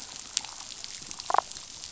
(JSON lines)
{"label": "biophony, damselfish", "recorder": "SoundTrap 500"}